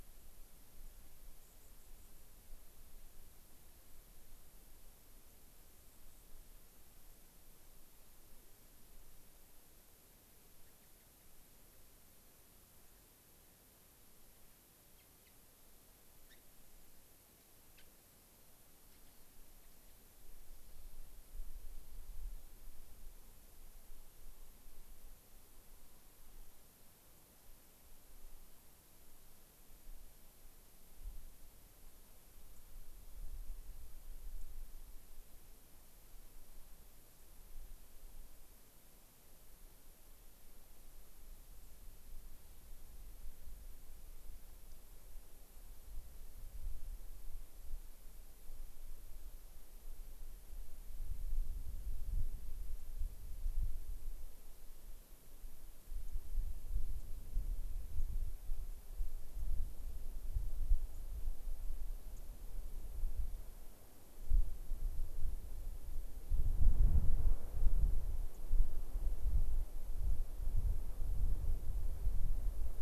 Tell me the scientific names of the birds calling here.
Zonotrichia leucophrys, Leucosticte tephrocotis